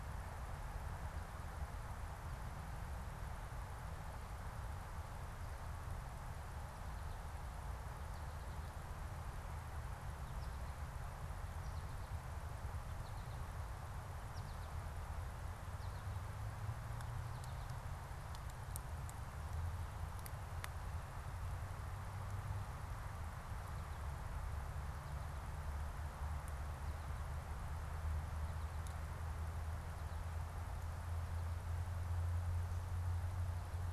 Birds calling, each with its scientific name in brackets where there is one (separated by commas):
American Goldfinch (Spinus tristis)